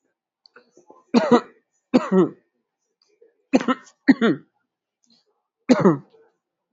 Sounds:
Cough